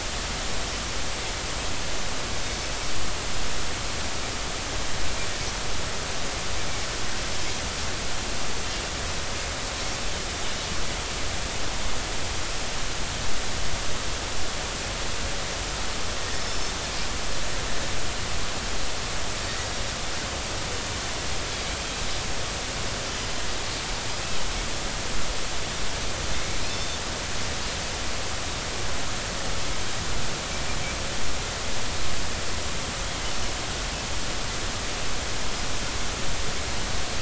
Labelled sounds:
16.3	16.7	Pacific white-sided dolphin, 5.2 to 5.4 kHz
27.7	28.0	Pacific white-sided dolphin, 3.5 to 3.6 kHz

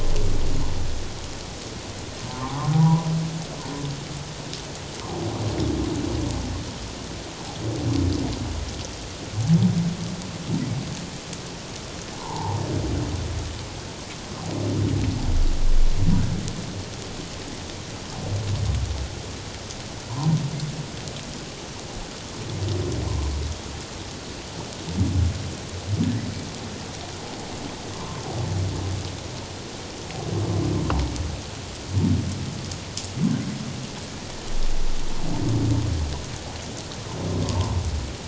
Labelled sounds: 2.3	3.1	humpback whale, 0.78 to 1.3 kHz
12.1	12.6	humpback whale, 0.78 to 1.1 kHz
20.1	20.4	humpback whale, 0.84 to 1.1 kHz
28.0	28.2	humpback whale, 0.88 to 1.1 kHz

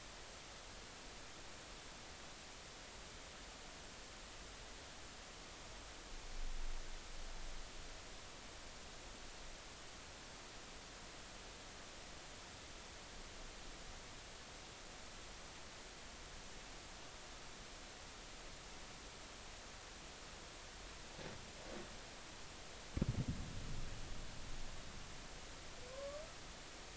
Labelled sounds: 25.9	26.2	humpback whale, 0.99 to 1.2 kHz

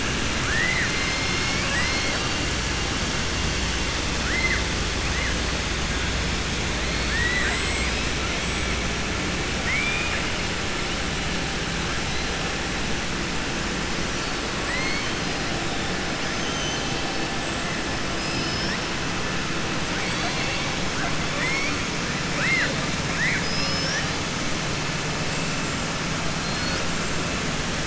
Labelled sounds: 1.2	2.2	killer whale, southern resident, 0.96 to 2.9 kHz
4.2	4.6	killer whale, southern resident, 1.4 to 2.1 kHz
7.0	8.1	killer whale, southern resident, 0.73 to 8.0 kHz
9.5	10.3	killer whale, southern resident, 1.7 to 3.7 kHz
14.6	15.2	killer whale, southern resident, 0.98 to 8.0 kHz
16.4	17.0	killer whale, southern resident, 3.0 to 4.0 kHz
18.1	18.8	killer whale, southern resident, 4.4 to 6.1 kHz
21.2	21.8	killer whale, southern resident, 1.0 to 5.6 kHz
22.3	22.8	killer whale, southern resident, 0.57 to 4.3 kHz

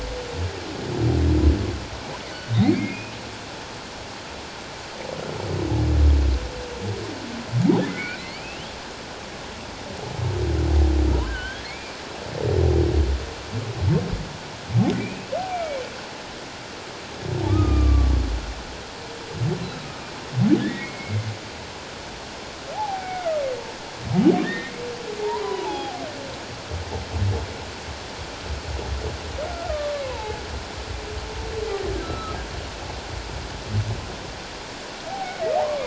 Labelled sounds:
2.5	3.1	humpback whale, 1.9 to 2.7 kHz
7.9	8.6	humpback whale, 1.3 to 4.7 kHz
11.3	11.9	humpback whale, 1.4 to 2.5 kHz
15.0	15.8	humpback whale, 2.2 to 2.7 kHz
17.5	18.1	humpback whale, 1.1 to 1.3 kHz
19.6	19.9	humpback whale, 3.8 to 4.1 kHz
20.6	21.3	humpback whale, 1.6 to 2.3 kHz
22.7	23.4	humpback whale, 0.78 to 2.3 kHz
24.4	26.0	humpback whale, 0.78 to 3.4 kHz
29.7	30.4	humpback whale, 0.81 to 1.3 kHz
32.0	32.4	humpback whale, 1.2 to 1.4 kHz
35.1	35.4	humpback whale, 0.78 to 0.88 kHz

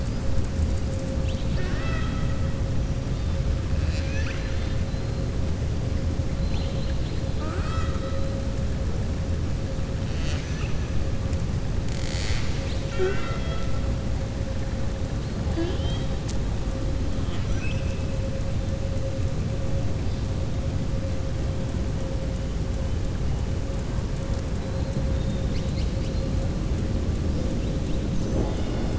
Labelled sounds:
1.1	2.4	killer whale, southern resident, 0.61 to 5.6 kHz
3.7	4.8	killer whale, southern resident, 1.4 to 7.4 kHz
6.3	7.2	killer whale, southern resident, 2.3 to 4.9 kHz
17.2	18.0	killer whale, southern resident, 1.1 to 4.0 kHz

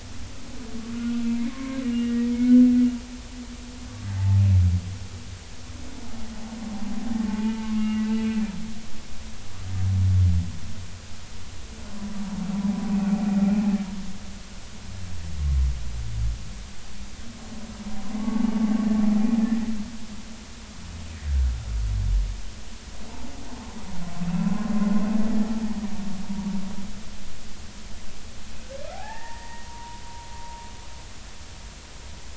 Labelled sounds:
0.9	2.7	humpback whale, 1.0 to 2.9 kHz
7.4	8.0	humpback whale, 1.2 to 2.9 kHz
9.0	9.4	humpback whale, 2.6 to 2.7 kHz
18.2	18.6	humpback whale, 1.0 to 1.2 kHz
24.3	24.7	humpback whale, 0.96 to 2.7 kHz
26.2	26.5	humpback whale, 0.90 to 0.99 kHz
28.9	30.7	humpback whale, 0.80 to 1.9 kHz

